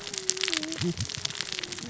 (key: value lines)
label: biophony, cascading saw
recorder: SoundTrap 600 or HydroMoth